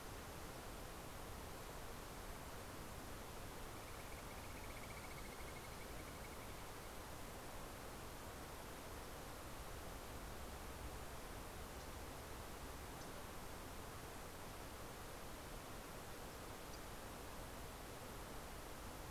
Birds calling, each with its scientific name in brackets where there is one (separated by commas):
MacGillivray's Warbler (Geothlypis tolmiei)